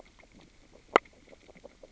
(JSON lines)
{"label": "biophony, grazing", "recorder": "SoundTrap 600 or HydroMoth"}